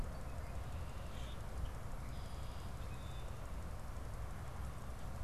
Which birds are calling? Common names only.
Common Grackle